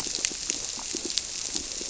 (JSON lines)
{"label": "biophony, squirrelfish (Holocentrus)", "recorder": "SoundTrap 300"}